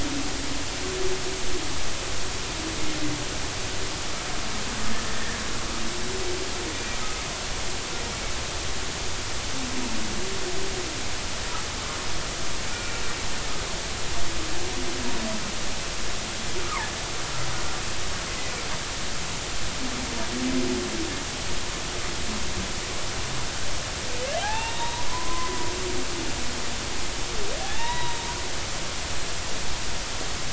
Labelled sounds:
6.7	7.0	humpback whale, 2.2 to 2.4 kHz
12.7	13.0	humpback whale, 2.2 to 2.5 kHz
16.6	16.9	humpback whale, 0.83 to 1.4 kHz
24.4	25.6	humpback whale, 0.80 to 3.9 kHz
27.6	28.3	humpback whale, 0.80 to 4.0 kHz

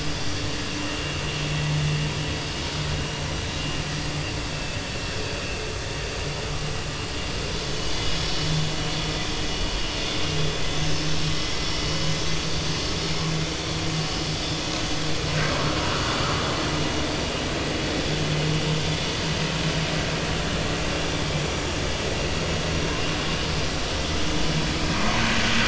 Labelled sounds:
7.7	7.9	vessel noise, 2.9 to 3.1 kHz
8.2	8.5	vessel noise, 2.9 to 3.0 kHz
24.9	25.2	vessel noise, 0.93 to 1.2 kHz

